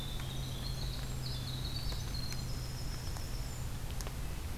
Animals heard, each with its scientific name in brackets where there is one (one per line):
Winter Wren (Troglodytes hiemalis)
Red-breasted Nuthatch (Sitta canadensis)